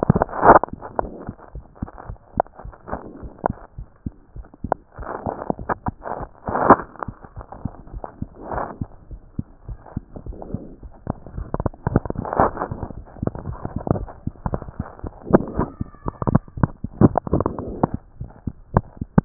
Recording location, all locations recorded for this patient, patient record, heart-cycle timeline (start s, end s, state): mitral valve (MV)
pulmonary valve (PV)+tricuspid valve (TV)+mitral valve (MV)
#Age: Child
#Sex: Male
#Height: 89.0 cm
#Weight: 13.4 kg
#Pregnancy status: False
#Murmur: Unknown
#Murmur locations: nan
#Most audible location: nan
#Systolic murmur timing: nan
#Systolic murmur shape: nan
#Systolic murmur grading: nan
#Systolic murmur pitch: nan
#Systolic murmur quality: nan
#Diastolic murmur timing: nan
#Diastolic murmur shape: nan
#Diastolic murmur grading: nan
#Diastolic murmur pitch: nan
#Diastolic murmur quality: nan
#Outcome: Normal
#Campaign: 2015 screening campaign
0.00	9.07	unannotated
9.07	9.20	S1
9.20	9.34	systole
9.34	9.44	S2
9.44	9.67	diastole
9.67	9.76	S1
9.76	9.94	systole
9.94	10.01	S2
10.01	10.24	diastole
10.24	10.33	S1
10.33	10.51	systole
10.51	10.59	S2
10.59	10.80	diastole
10.80	10.89	S1
10.89	11.05	systole
11.05	11.13	S2
11.13	11.35	diastole
11.35	11.46	S1
11.46	18.16	unannotated
18.16	18.28	S1
18.28	18.43	systole
18.43	18.53	S2
18.53	18.70	diastole
18.70	18.83	S1
18.83	18.97	systole
18.97	19.06	S2
19.06	19.25	diastole